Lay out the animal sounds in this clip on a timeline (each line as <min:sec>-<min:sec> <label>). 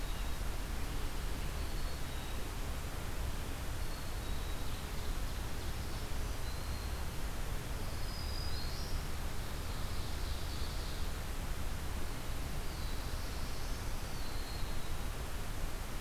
0:01.5-0:02.7 Black-capped Chickadee (Poecile atricapillus)
0:03.8-0:05.0 Black-capped Chickadee (Poecile atricapillus)
0:04.6-0:06.2 Ovenbird (Seiurus aurocapilla)
0:05.9-0:07.2 Black-capped Chickadee (Poecile atricapillus)
0:07.7-0:09.2 Black-throated Green Warbler (Setophaga virens)
0:09.4-0:11.3 Ovenbird (Seiurus aurocapilla)
0:12.6-0:14.4 Black-throated Blue Warbler (Setophaga caerulescens)
0:13.9-0:15.1 Black-capped Chickadee (Poecile atricapillus)